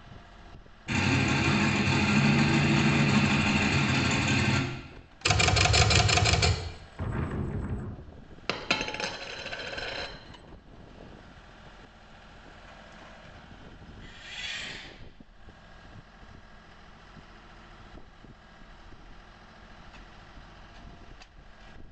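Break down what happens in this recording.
A quiet background noise continues. At 0.87 seconds, an engine idles. After that, at 5.23 seconds, the sound of a typewriter is heard. Later, at 6.98 seconds, there is wind. Following that, at 8.46 seconds, a coin drops. Finally, at 14.01 seconds, you can hear an engine.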